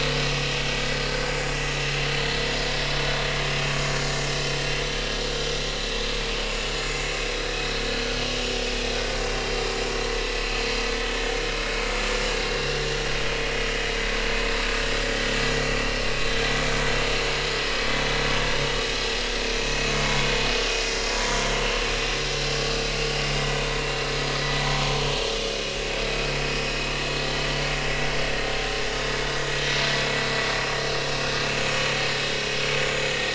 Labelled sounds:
1.0	1.3	vessel noise, 4.5 to 4.7 kHz
2.1	2.4	vessel noise, 4.2 to 4.4 kHz
5.2	5.6	vessel noise, 4.9 to 5.0 kHz
9.4	9.6	vessel noise, 3.1 to 3.2 kHz
15.3	15.8	vessel noise, 6.8 to 7.0 kHz
19.6	19.9	vessel noise, 2.5 to 4.4 kHz
21.1	21.4	vessel noise, 0.93 to 1.1 kHz
26.0	26.3	vessel noise, 3.9 to 4.0 kHz

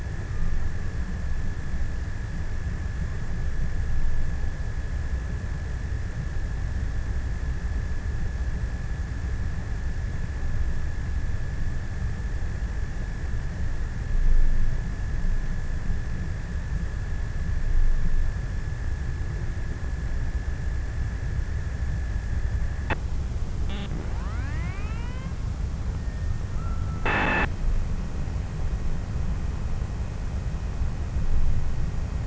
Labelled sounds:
20.8	28.4	abiotic sound, 0 to 8.0 kHz

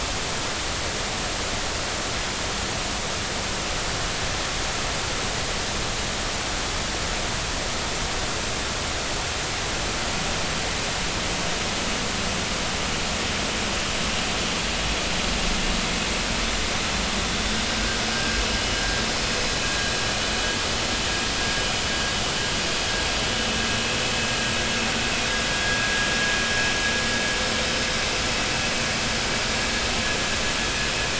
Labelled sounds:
18.1	18.4	vessel noise, 1.6 to 1.7 kHz

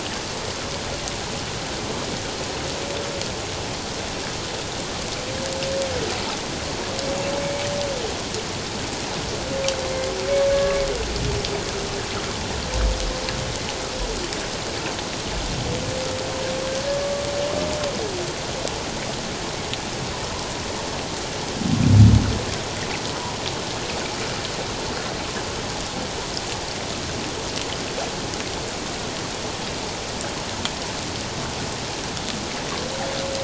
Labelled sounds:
10.5	10.8	humpback whale, 1.1 to 1.7 kHz

